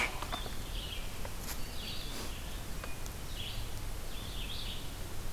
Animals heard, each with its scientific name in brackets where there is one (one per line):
Red-eyed Vireo (Vireo olivaceus)